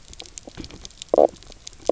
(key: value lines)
label: biophony, knock croak
recorder: SoundTrap 300